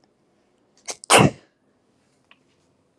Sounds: Sneeze